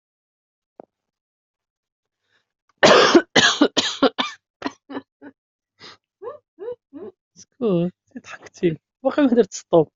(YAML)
expert_labels:
- quality: ok
  cough_type: dry
  dyspnea: false
  wheezing: false
  stridor: false
  choking: false
  congestion: false
  nothing: true
  diagnosis: lower respiratory tract infection
  severity: mild
age: 30
gender: female
respiratory_condition: false
fever_muscle_pain: false
status: COVID-19